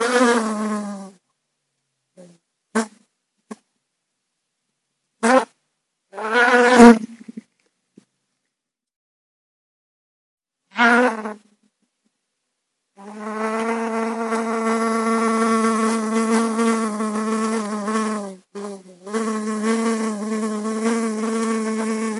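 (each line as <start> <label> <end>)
0.0 An insect buzzes as it flies by quickly. 1.2
2.2 An insect is flying rapidly. 3.6
5.2 An insect buzzes as it flies by quickly. 5.5
6.2 An insect buzzes. 7.5
10.8 An insect is buzzing. 11.4
13.0 An insect buzzes loudly while flying around. 22.2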